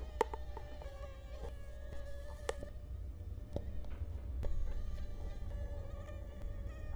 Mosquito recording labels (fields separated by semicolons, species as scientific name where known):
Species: Culex quinquefasciatus; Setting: cup